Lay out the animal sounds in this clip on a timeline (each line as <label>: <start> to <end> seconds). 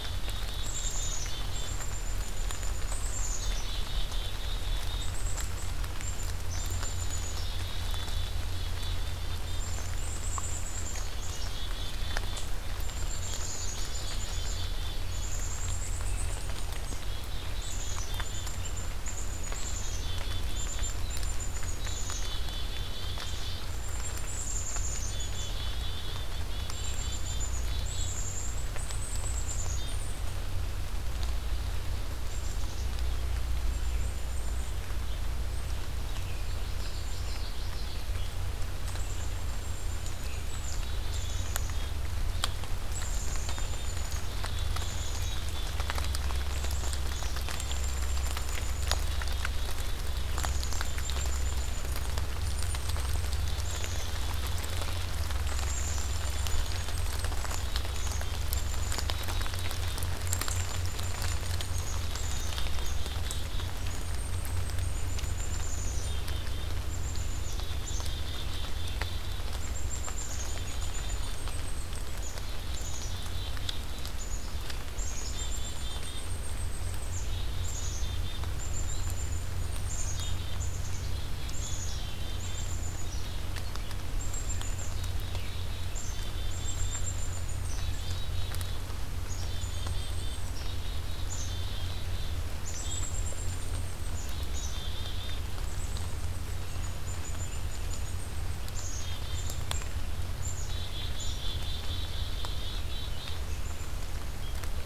Black-capped Chickadee (Poecile atricapillus): 0.0 to 30.4 seconds
Common Yellowthroat (Geothlypis trichas): 13.0 to 14.7 seconds
Black-capped Chickadee (Poecile atricapillus): 32.2 to 33.3 seconds
Black-capped Chickadee (Poecile atricapillus): 33.6 to 34.8 seconds
Black-capped Chickadee (Poecile atricapillus): 35.4 to 35.9 seconds
Common Yellowthroat (Geothlypis trichas): 36.4 to 38.2 seconds
Black-capped Chickadee (Poecile atricapillus): 36.4 to 37.6 seconds
Black-capped Chickadee (Poecile atricapillus): 38.8 to 42.0 seconds
Black-capped Chickadee (Poecile atricapillus): 42.9 to 55.0 seconds
Black-capped Chickadee (Poecile atricapillus): 55.4 to 83.6 seconds
Black-capped Chickadee (Poecile atricapillus): 84.1 to 88.9 seconds
Black-capped Chickadee (Poecile atricapillus): 89.2 to 92.3 seconds
Black-capped Chickadee (Poecile atricapillus): 92.6 to 99.9 seconds
Black-capped Chickadee (Poecile atricapillus): 100.4 to 103.5 seconds